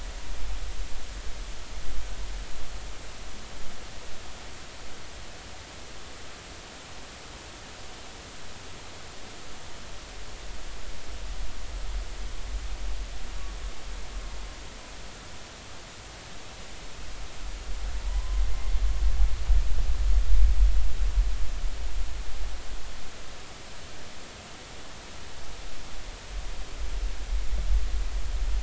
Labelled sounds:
18.1	18.4	humpback whale, 0.93 to 1.1 kHz

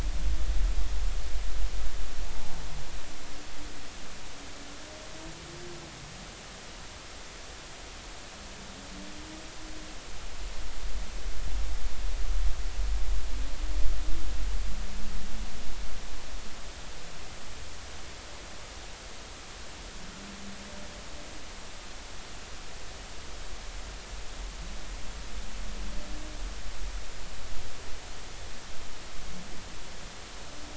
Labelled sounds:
2.3	2.5	humpback whale, 0.80 to 0.99 kHz

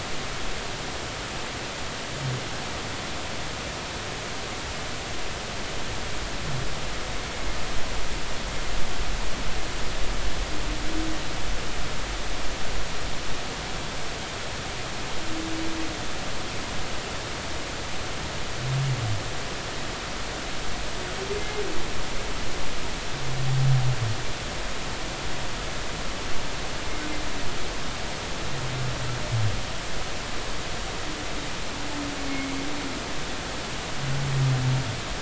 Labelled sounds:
21.4	21.6	humpback whale, 2.0 to 2.2 kHz
32.2	32.5	humpback whale, 2.1 to 2.3 kHz

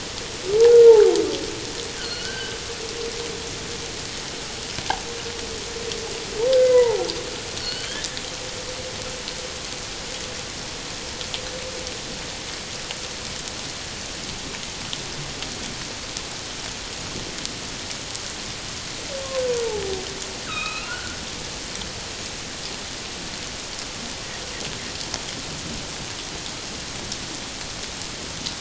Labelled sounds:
2.0	2.6	humpback whale, 1.3 to 4.4 kHz
6.5	7.1	humpback whale, 0.78 to 2.1 kHz
7.6	8.1	humpback whale, 1.4 to 4.7 kHz
20.4	21.2	humpback whale, 1.2 to 4.2 kHz

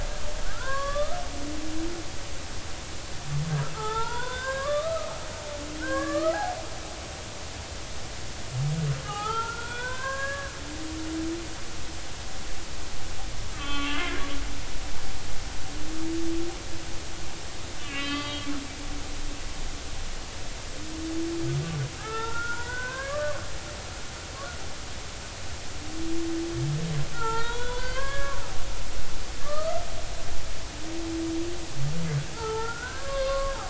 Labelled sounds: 0.5	1.2	humpback whale, 0.96 to 3.6 kHz
3.7	5.1	humpback whale, 0.80 to 3.8 kHz
5.8	6.4	humpback whale, 1.0 to 2.0 kHz
9.0	10.5	humpback whale, 0.80 to 3.6 kHz
13.5	14.3	humpback whale, 1.1 to 3.5 kHz
17.8	18.5	humpback whale, 1.1 to 4.7 kHz
22.0	23.4	humpback whale, 0.80 to 1.9 kHz
27.1	28.4	humpback whale, 0.83 to 4.0 kHz
29.4	29.8	humpback whale, 1.1 to 1.9 kHz
32.3	33.6	humpback whale, 0.80 to 5.0 kHz

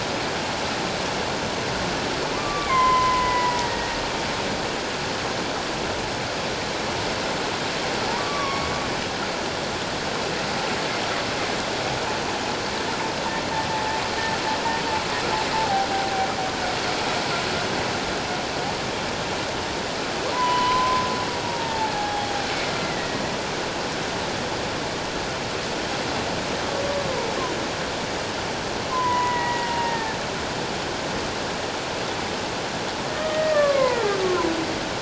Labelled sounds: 2.4	4.0	humpback whale, 0.84 to 3.2 kHz
8.2	8.7	humpback whale, 1.0 to 2.3 kHz
15.5	15.9	humpback whale, 0.78 to 0.91 kHz
20.3	21.0	humpback whale, 0.94 to 3.0 kHz
21.5	23.2	humpback whale, 0.78 to 2.1 kHz
28.9	30.2	humpback whale, 0.78 to 2.0 kHz
33.3	34.5	humpback whale, 0.78 to 2.2 kHz

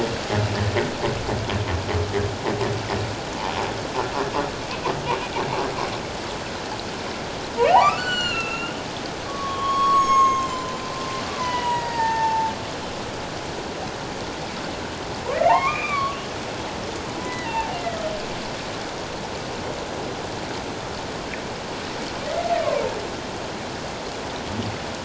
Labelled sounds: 7.6	8.7	humpback whale, 0.78 to 7.5 kHz
9.3	12.5	humpback whale, 0.81 to 7.9 kHz
15.5	16.2	humpback whale, 0.78 to 2.7 kHz
17.1	17.8	humpback whale, 0.78 to 3.0 kHz

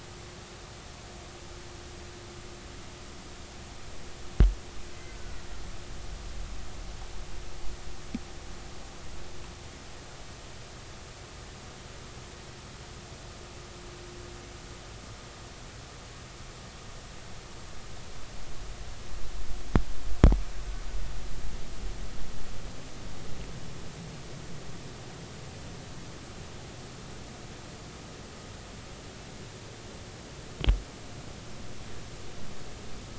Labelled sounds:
4.9	5.5	killer whale, Bigg's (transient), 1.4 to 2.1 kHz

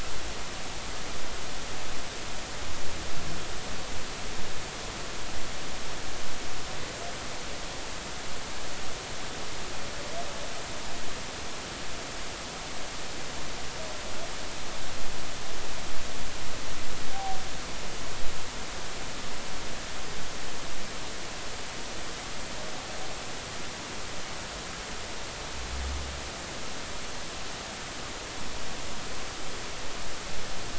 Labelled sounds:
17.1	17.4	humpback whale, 0.80 to 0.83 kHz

